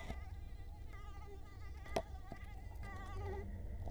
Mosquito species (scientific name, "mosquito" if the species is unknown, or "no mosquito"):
Culex quinquefasciatus